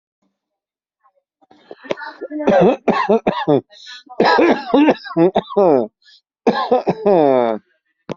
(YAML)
expert_labels:
- quality: ok
  cough_type: wet
  dyspnea: true
  wheezing: false
  stridor: true
  choking: false
  congestion: false
  nothing: false
  diagnosis: COVID-19
  severity: mild